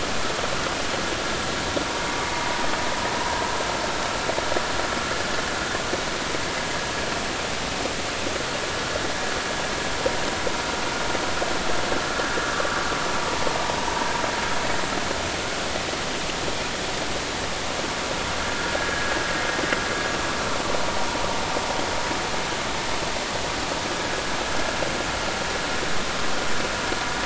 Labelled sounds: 3.2	3.4	vessel noise, 0.86 to 1.1 kHz
18.5	19.1	vessel noise, 1.3 to 1.7 kHz

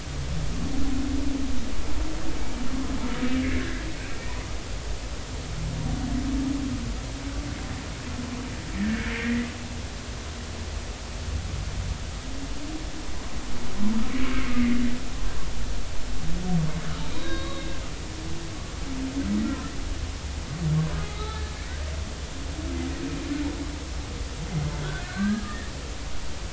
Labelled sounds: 8.8	9.5	humpback whale, 1.4 to 2.2 kHz
17.1	17.7	humpback whale, 1.0 to 4.0 kHz
19.4	19.7	humpback whale, 1.3 to 1.4 kHz
21.1	21.4	humpback whale, 0.80 to 4.0 kHz
25.1	25.7	humpback whale, 1.1 to 1.9 kHz

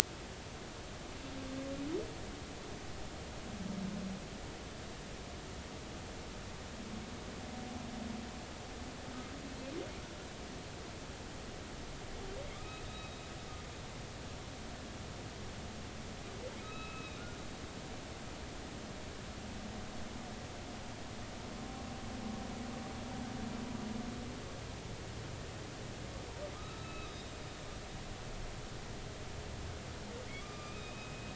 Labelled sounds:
12.5	13.2	humpback whale, 1.1 to 3.9 kHz
16.6	17.2	humpback whale, 1.2 to 3.9 kHz
26.5	27.3	humpback whale, 1.2 to 4.0 kHz
30.4	31.3	humpback whale, 1.1 to 4.9 kHz

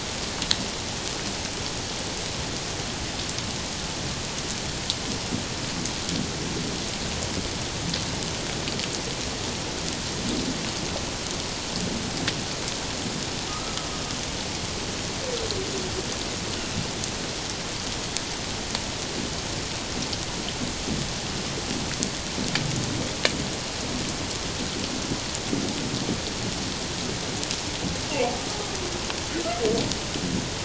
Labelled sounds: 13.5	13.7	humpback whale, 1.1 to 1.3 kHz

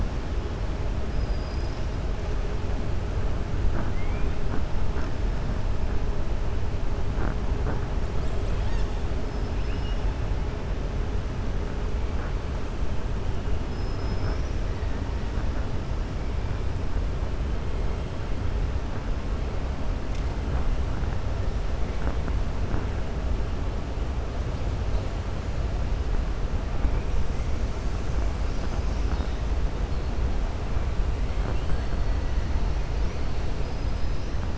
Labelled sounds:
1.1	1.9	killer whale, 4.3 to 6.1 kHz
9.5	10.0	killer whale, 1.7 to 3.6 kHz
13.6	14.6	killer whale, 5.1 to 5.9 kHz

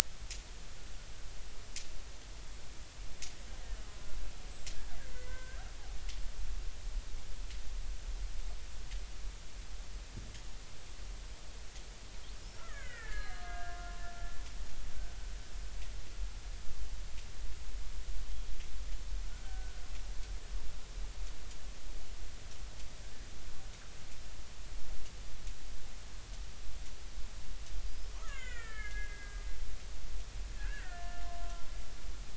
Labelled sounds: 5.0	5.6	killer whale, Bigg's (transient), 0.96 to 2.1 kHz
12.6	13.9	killer whale, Bigg's (transient), 1.1 to 4.2 kHz
19.4	19.8	killer whale, Bigg's (transient), 1.4 to 1.6 kHz
27.9	29.4	killer whale, Bigg's (transient), 1.2 to 7.1 kHz
30.5	31.7	killer whale, Bigg's (transient), 0.93 to 2.0 kHz

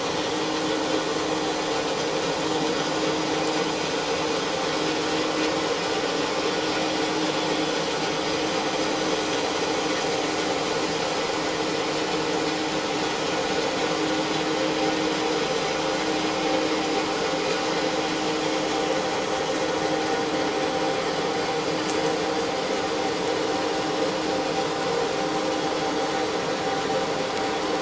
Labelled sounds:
5.5	5.8	vessel noise, 6.6 to 6.7 kHz

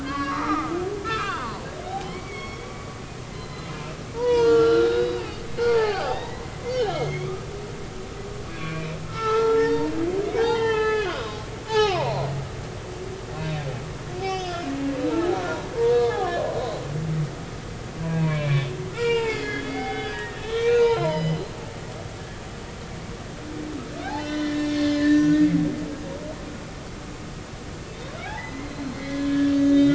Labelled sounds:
0.0	2.9	humpback whale, 0.80 to 5.6 kHz
3.3	5.2	humpback whale, 0.86 to 6.4 kHz
5.6	6.4	humpback whale, 0.80 to 5.0 kHz
6.9	7.5	humpback whale, 1.1 to 3.4 kHz
8.5	12.3	humpback whale, 0.80 to 5.5 kHz
14.2	15.4	humpback whale, 0.80 to 5.4 kHz
15.9	16.4	humpback whale, 0.99 to 4.4 kHz
18.2	21.4	humpback whale, 0.80 to 7.6 kHz
24.1	25.5	humpback whale, 1.7 to 6.7 kHz
28.2	29.9	humpback whale, 0.80 to 5.2 kHz

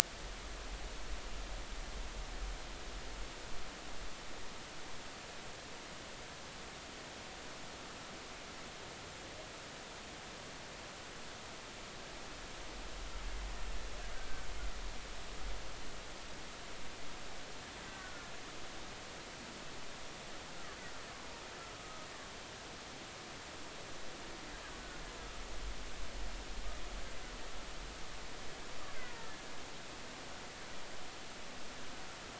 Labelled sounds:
17.8	18.3	killer whale, Bigg's (transient), 1.4 to 2.0 kHz
21.7	22.0	killer whale, Bigg's (transient), 1.2 to 1.3 kHz

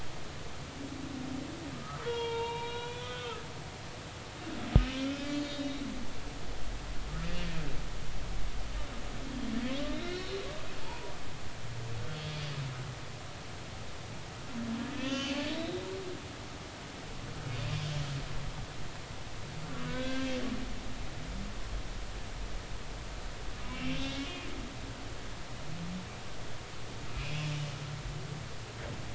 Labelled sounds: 1.7	3.4	humpback whale, 0.86 to 4.0 kHz
4.2	5.8	humpback whale, 2.6 to 4.4 kHz
9.9	11.1	humpback whale, 0.83 to 4.3 kHz
12.1	12.4	humpback whale, 3.3 to 3.4 kHz
14.9	15.9	humpback whale, 1.7 to 5.9 kHz
19.9	20.4	humpback whale, 1.4 to 3.5 kHz
23.6	24.4	humpback whale, 2.6 to 3.6 kHz
27.1	27.5	humpback whale, 2.3 to 2.8 kHz

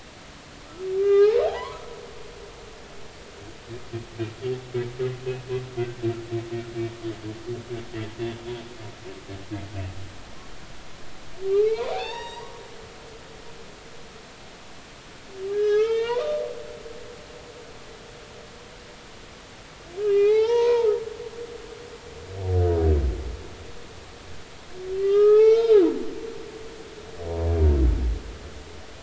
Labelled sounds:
0.9	1.8	humpback whale, 0.80 to 5.5 kHz
11.5	12.5	humpback whale, 0.80 to 5.8 kHz
15.5	16.4	humpback whale, 0.86 to 4.9 kHz
20.0	20.9	humpback whale, 0.80 to 5.7 kHz
24.9	26.8	humpback whale, 0.80 to 5.1 kHz

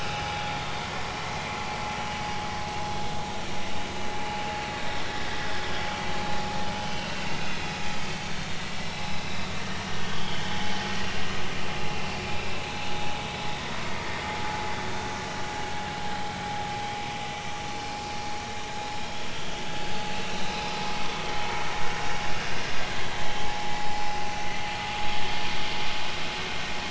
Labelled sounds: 0.7	1.0	vessel noise, 2.0 to 2.3 kHz
6.7	7.3	vessel noise, 2.6 to 3.2 kHz
10.1	10.6	vessel noise, 2.9 to 3.4 kHz
19.0	19.2	vessel noise, 3.1 to 3.4 kHz
20.4	20.7	vessel noise, 3.7 to 4.1 kHz
21.0	21.5	vessel noise, 2.5 to 3.6 kHz
24.8	25.1	vessel noise, 1.1 to 1.3 kHz

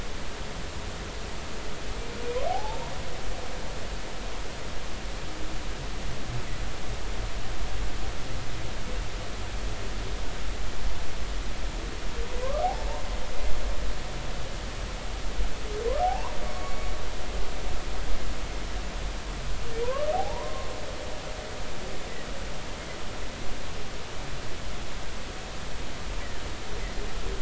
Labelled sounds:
2.5	2.9	humpback whale, 0.80 to 0.99 kHz
12.6	12.9	humpback whale, 0.80 to 0.93 kHz
16.0	16.9	humpback whale, 0.80 to 4.5 kHz
19.8	20.7	humpback whale, 0.80 to 1.2 kHz

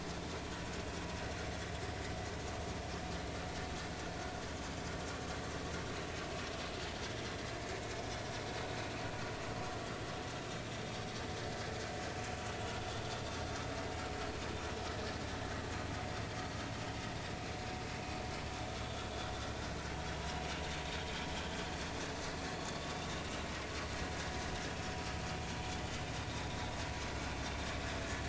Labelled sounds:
23.0	23.2	vessel noise, 3.5 to 3.7 kHz

